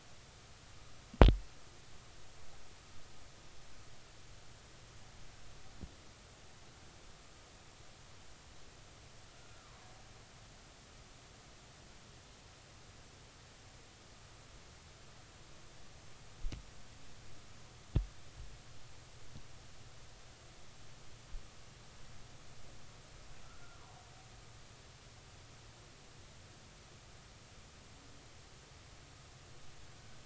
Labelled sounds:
9.3	9.8	killer whale, Bigg's (transient), 0.96 to 1.5 kHz
23.4	23.8	killer whale, Bigg's (transient), 1.3 to 1.5 kHz

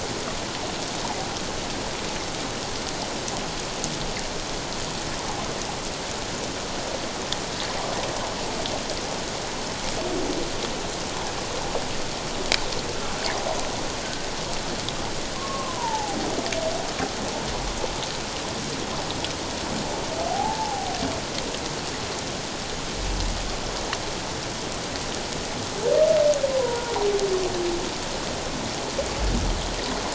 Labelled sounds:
15.4	16.2	humpback whale, 0.78 to 1.2 kHz
20.3	20.9	humpback whale, 0.78 to 0.94 kHz
26.5	26.9	humpback whale, 0.91 to 1.1 kHz

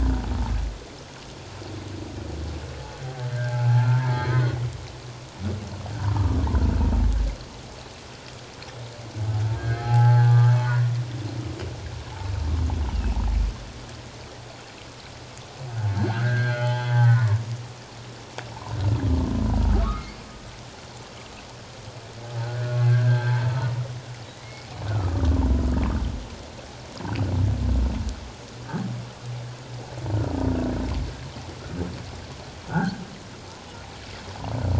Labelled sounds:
3.3	4.7	humpback whale, 0.78 to 2.3 kHz
6.1	6.4	humpback whale, 1.1 to 1.3 kHz
9.6	10.9	humpback whale, 0.78 to 1.7 kHz
12.9	13.2	humpback whale, 2.5 to 3.1 kHz
15.9	17.4	humpback whale, 0.78 to 3.4 kHz
18.5	18.8	humpback whale, 0.81 to 1.2 kHz
19.7	20.1	humpback whale, 1.1 to 1.4 kHz
22.4	23.3	humpback whale, 1.3 to 1.7 kHz
24.4	25.4	humpback whale, 1.1 to 2.3 kHz

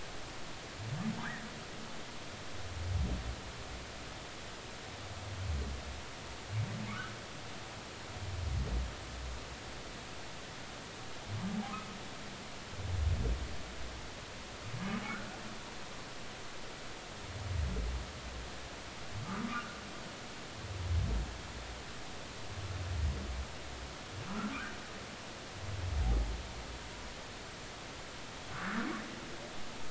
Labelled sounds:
6.9	7.1	humpback whale, 1.1 to 1.7 kHz
19.5	19.8	humpback whale, 1.1 to 1.5 kHz
24.3	24.5	humpback whale, 1.2 to 1.5 kHz
28.5	28.9	humpback whale, 1.1 to 1.8 kHz

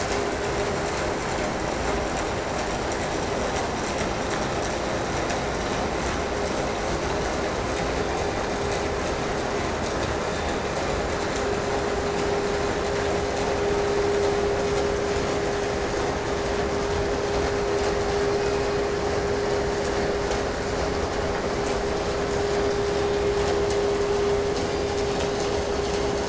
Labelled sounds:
18.2	19.1	killer whale, 2.2 to 2.9 kHz
22.4	23.6	killer whale, 2.0 to 5.3 kHz
24.3	25.5	killer whale, 2.0 to 5.3 kHz

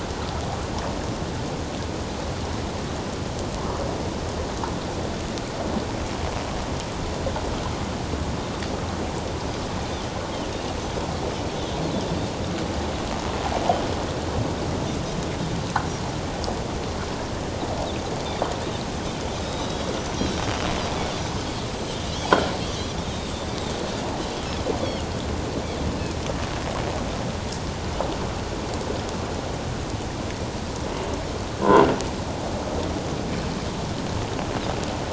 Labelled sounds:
19.4	19.8	Pacific white-sided dolphin, 3.6 to 4.0 kHz
22.1	22.3	Pacific white-sided dolphin, 2.8 to 3.4 kHz
23.0	23.3	Pacific white-sided dolphin, 3.4 to 3.8 kHz

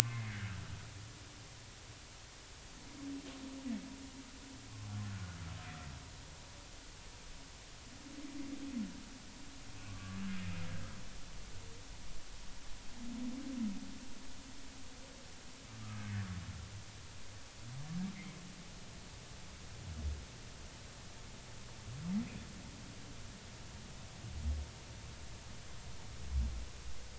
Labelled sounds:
0.0	0.5	humpback whale, 1.3 to 2.2 kHz
9.9	10.2	humpback whale, 1.1 to 1.2 kHz
15.8	16.1	humpback whale, 1.2 to 1.3 kHz

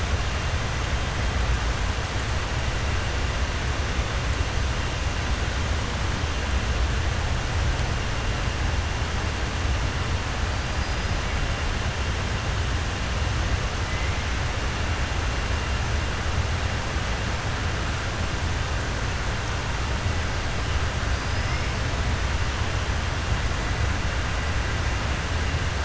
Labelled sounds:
10.7	11.1	killer whale, 4.0 to 5.2 kHz

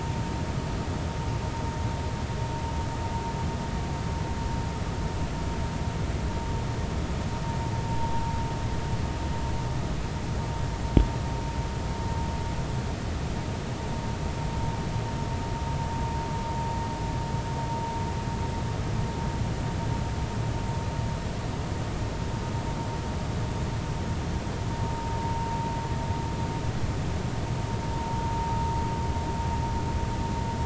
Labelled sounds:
25.2	25.5	vessel noise, 0.86 to 1.0 kHz
27.9	28.3	vessel noise, 0.83 to 1.1 kHz

